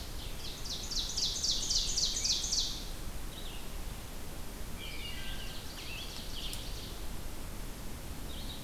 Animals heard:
Wood Thrush (Hylocichla mustelina), Ovenbird (Seiurus aurocapilla), Red-eyed Vireo (Vireo olivaceus), Scarlet Tanager (Piranga olivacea)

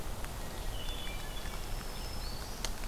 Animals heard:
Hermit Thrush (Catharus guttatus), Black-throated Green Warbler (Setophaga virens)

